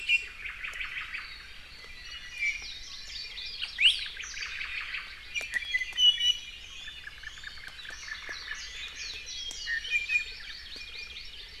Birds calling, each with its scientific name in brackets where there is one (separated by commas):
Hawaii Creeper (Loxops mana), Hawaii Amakihi (Chlorodrepanis virens), Warbling White-eye (Zosterops japonicus), Iiwi (Drepanis coccinea)